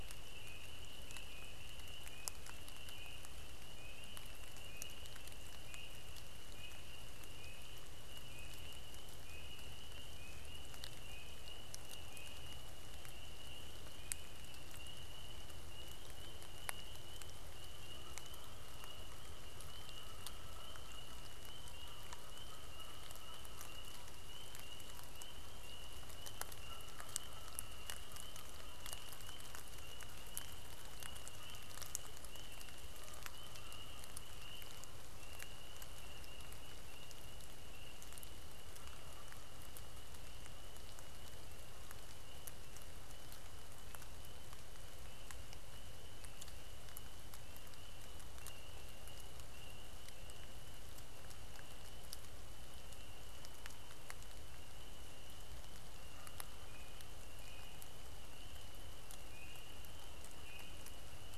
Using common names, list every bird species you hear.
Canada Goose